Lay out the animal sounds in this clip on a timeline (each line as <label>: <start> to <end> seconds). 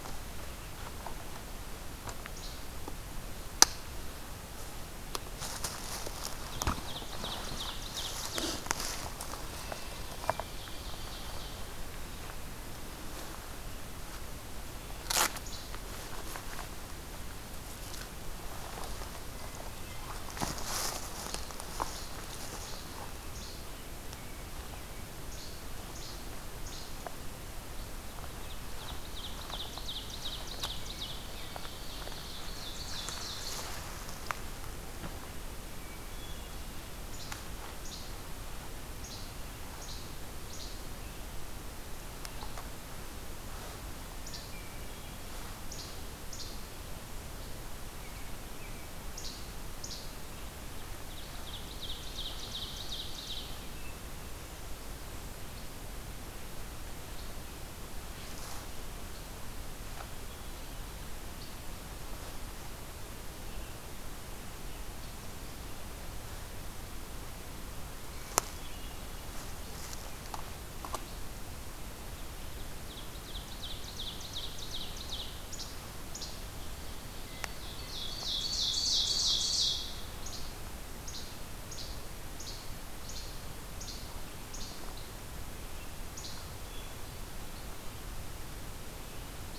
Least Flycatcher (Empidonax minimus): 2.3 to 2.6 seconds
Ovenbird (Seiurus aurocapilla): 6.4 to 8.7 seconds
Ovenbird (Seiurus aurocapilla): 10.1 to 12.1 seconds
Least Flycatcher (Empidonax minimus): 15.4 to 15.7 seconds
Least Flycatcher (Empidonax minimus): 21.2 to 21.5 seconds
Least Flycatcher (Empidonax minimus): 21.8 to 22.1 seconds
Least Flycatcher (Empidonax minimus): 22.6 to 22.8 seconds
Least Flycatcher (Empidonax minimus): 23.3 to 23.7 seconds
Least Flycatcher (Empidonax minimus): 24.8 to 27.3 seconds
Ovenbird (Seiurus aurocapilla): 28.0 to 34.0 seconds
Hermit Thrush (Catharus guttatus): 30.6 to 31.8 seconds
Hermit Thrush (Catharus guttatus): 35.6 to 36.9 seconds
Least Flycatcher (Empidonax minimus): 36.9 to 38.1 seconds
Least Flycatcher (Empidonax minimus): 38.8 to 40.9 seconds
Least Flycatcher (Empidonax minimus): 44.1 to 44.6 seconds
Hermit Thrush (Catharus guttatus): 44.1 to 45.3 seconds
Least Flycatcher (Empidonax minimus): 45.7 to 46.5 seconds
American Robin (Turdus migratorius): 48.0 to 49.0 seconds
Least Flycatcher (Empidonax minimus): 49.1 to 49.4 seconds
Least Flycatcher (Empidonax minimus): 49.7 to 50.1 seconds
Ovenbird (Seiurus aurocapilla): 50.8 to 53.8 seconds
American Robin (Turdus migratorius): 53.0 to 54.4 seconds
Hermit Thrush (Catharus guttatus): 68.0 to 69.3 seconds
Ovenbird (Seiurus aurocapilla): 72.5 to 75.5 seconds
Least Flycatcher (Empidonax minimus): 75.4 to 76.4 seconds
Ovenbird (Seiurus aurocapilla): 76.7 to 80.0 seconds
Least Flycatcher (Empidonax minimus): 80.1 to 80.4 seconds
Least Flycatcher (Empidonax minimus): 81.0 to 81.3 seconds
Least Flycatcher (Empidonax minimus): 81.6 to 81.9 seconds
Least Flycatcher (Empidonax minimus): 82.3 to 82.7 seconds
Least Flycatcher (Empidonax minimus): 83.0 to 83.3 seconds
Least Flycatcher (Empidonax minimus): 83.7 to 84.0 seconds
Least Flycatcher (Empidonax minimus): 84.4 to 84.8 seconds
Least Flycatcher (Empidonax minimus): 86.1 to 86.4 seconds
Hermit Thrush (Catharus guttatus): 86.5 to 87.6 seconds